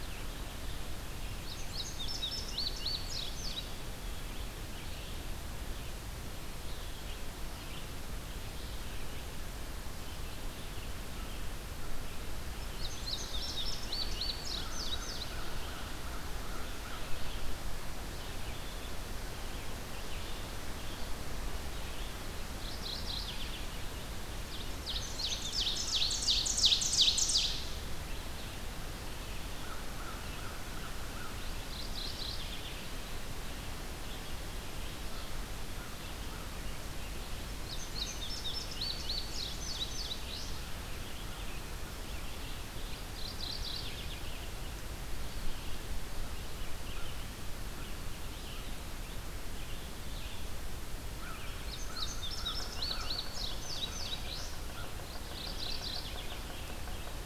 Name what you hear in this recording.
Red-eyed Vireo, Indigo Bunting, American Crow, Mourning Warbler, Ovenbird